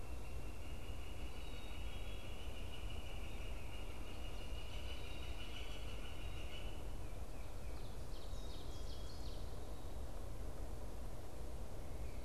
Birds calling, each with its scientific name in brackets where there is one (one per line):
Black-capped Chickadee (Poecile atricapillus)
Ovenbird (Seiurus aurocapilla)